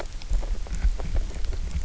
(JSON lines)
{"label": "biophony, grazing", "recorder": "SoundTrap 300"}